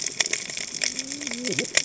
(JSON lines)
{"label": "biophony, cascading saw", "recorder": "HydroMoth"}